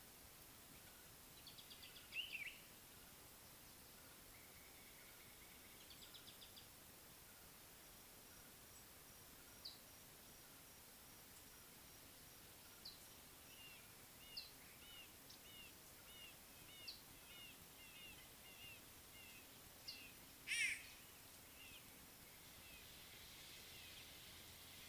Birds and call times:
Mariqua Sunbird (Cinnyris mariquensis): 1.7s, 6.3s
Common Bulbul (Pycnonotus barbatus): 2.3s
Slate-colored Boubou (Laniarius funebris): 4.9s
Scarlet-chested Sunbird (Chalcomitra senegalensis): 9.6s
Red-fronted Barbet (Tricholaema diademata): 16.1s
White-bellied Go-away-bird (Corythaixoides leucogaster): 20.5s

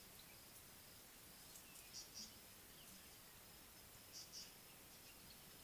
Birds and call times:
Tawny-flanked Prinia (Prinia subflava): 4.1s

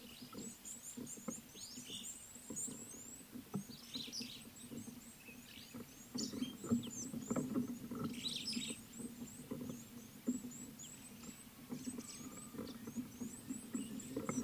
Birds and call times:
Red-cheeked Cordonbleu (Uraeginthus bengalus): 1.4s
Superb Starling (Lamprotornis superbus): 8.4s

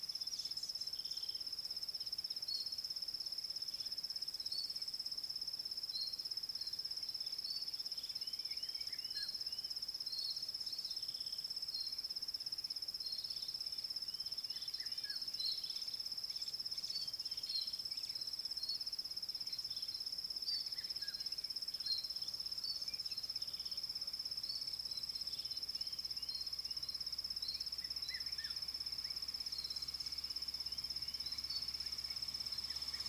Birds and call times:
Rattling Cisticola (Cisticola chiniana): 1.2s
Thrush Nightingale (Luscinia luscinia): 11.8s

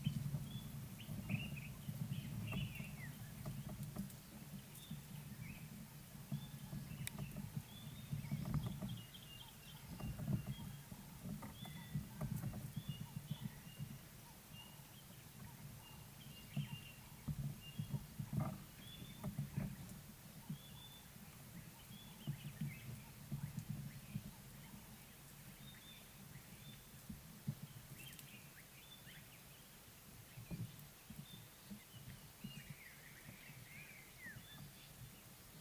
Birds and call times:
Common Bulbul (Pycnonotus barbatus): 1.4s

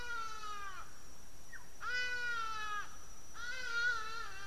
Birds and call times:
Black-tailed Oriole (Oriolus percivali): 1.6s
Hadada Ibis (Bostrychia hagedash): 2.4s

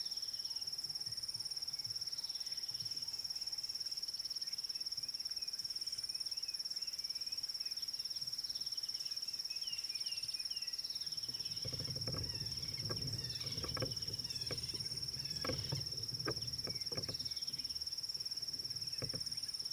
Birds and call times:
Red-backed Scrub-Robin (Cercotrichas leucophrys): 0.1s, 17.4s
Klaas's Cuckoo (Chrysococcyx klaas): 6.0s
Ring-necked Dove (Streptopelia capicola): 13.2s, 15.2s

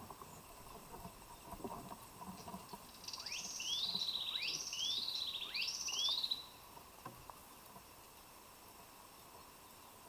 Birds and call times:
Hunter's Cisticola (Cisticola hunteri): 4.8s

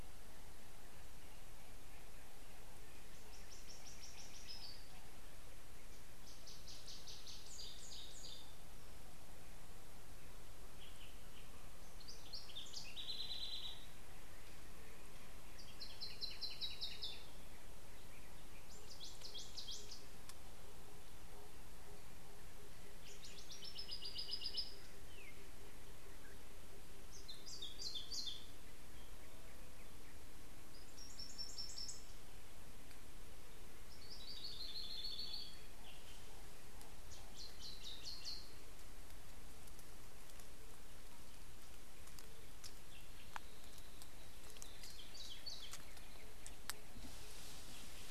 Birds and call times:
Brown Woodland-Warbler (Phylloscopus umbrovirens): 16.4s, 34.8s

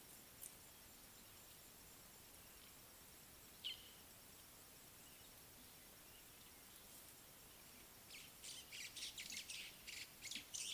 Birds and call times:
Fork-tailed Drongo (Dicrurus adsimilis): 3.7s
White-browed Sparrow-Weaver (Plocepasser mahali): 9.4s

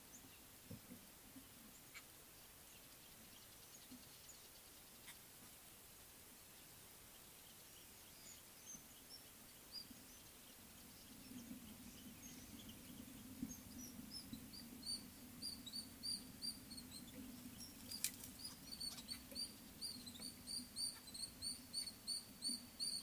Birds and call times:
Rufous Chatterer (Argya rubiginosa): 9.1s, 14.9s, 21.4s

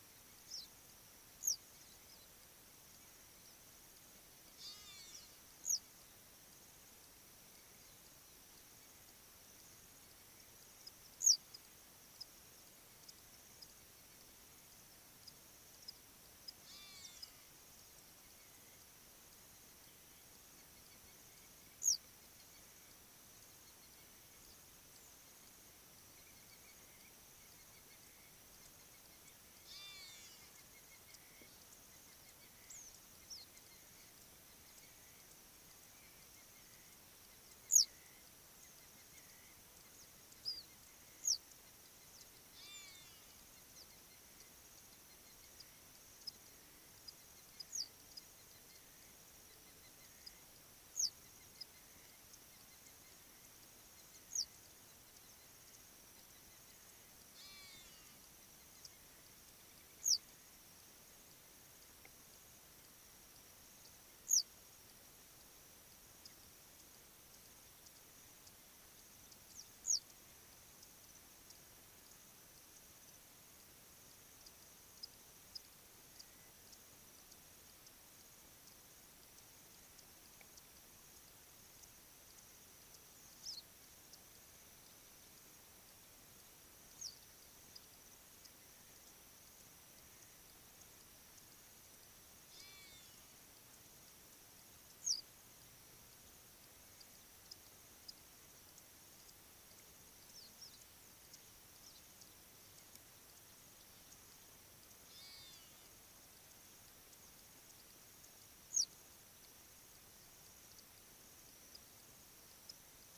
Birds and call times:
Hadada Ibis (Bostrychia hagedash): 5.0s, 17.0s, 30.0s, 57.7s, 92.8s
Western Yellow Wagtail (Motacilla flava): 11.3s, 21.8s, 47.8s, 64.3s, 95.1s
Black-winged Lapwing (Vanellus melanopterus): 27.7s, 31.3s, 36.4s, 51.4s

